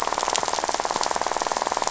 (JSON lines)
{"label": "biophony, rattle", "recorder": "SoundTrap 500"}